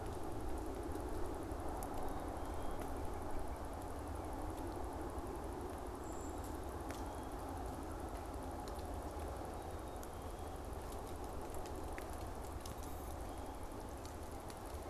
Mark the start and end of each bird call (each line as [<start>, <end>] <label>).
[5.76, 6.66] Brown Creeper (Certhia americana)